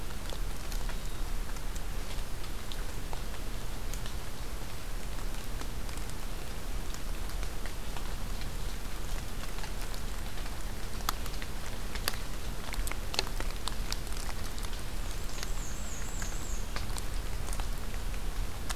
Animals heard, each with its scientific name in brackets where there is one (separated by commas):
Black-and-white Warbler (Mniotilta varia)